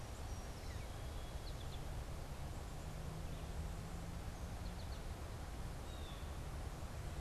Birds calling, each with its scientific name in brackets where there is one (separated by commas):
American Goldfinch (Spinus tristis), Song Sparrow (Melospiza melodia), Blue Jay (Cyanocitta cristata)